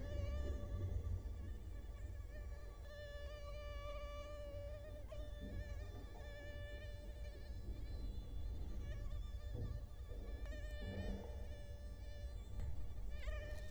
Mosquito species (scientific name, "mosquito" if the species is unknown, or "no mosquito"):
Culex quinquefasciatus